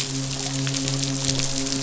{"label": "biophony, midshipman", "recorder": "SoundTrap 500"}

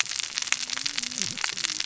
{"label": "biophony, cascading saw", "recorder": "SoundTrap 600 or HydroMoth"}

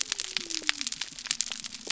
{"label": "biophony", "recorder": "SoundTrap 300"}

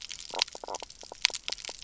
{"label": "biophony, knock croak", "recorder": "SoundTrap 300"}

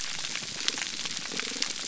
{"label": "biophony, damselfish", "recorder": "SoundTrap 300"}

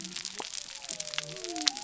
{"label": "biophony", "recorder": "SoundTrap 300"}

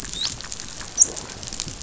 {"label": "biophony, dolphin", "recorder": "SoundTrap 500"}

